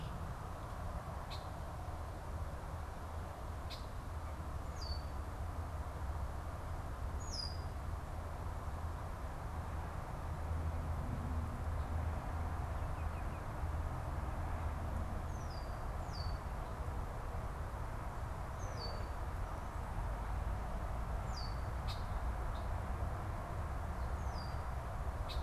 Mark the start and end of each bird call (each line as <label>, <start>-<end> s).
Red-winged Blackbird (Agelaius phoeniceus), 0.0-5.1 s
Red-winged Blackbird (Agelaius phoeniceus), 7.1-7.8 s
Red-winged Blackbird (Agelaius phoeniceus), 15.1-25.4 s